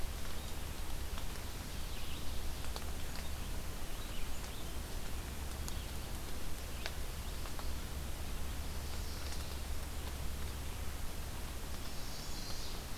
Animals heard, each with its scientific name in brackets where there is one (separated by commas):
Chestnut-sided Warbler (Setophaga pensylvanica), Red-eyed Vireo (Vireo olivaceus)